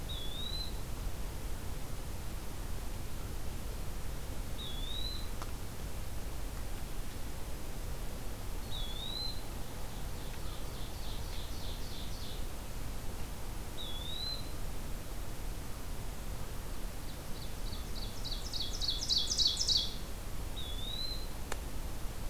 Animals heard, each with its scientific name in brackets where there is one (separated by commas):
Eastern Wood-Pewee (Contopus virens), Ovenbird (Seiurus aurocapilla)